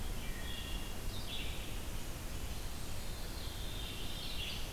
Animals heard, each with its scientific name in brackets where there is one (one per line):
Red-eyed Vireo (Vireo olivaceus)
Veery (Catharus fuscescens)
Wood Thrush (Hylocichla mustelina)